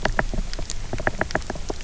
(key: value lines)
label: biophony, knock
recorder: SoundTrap 300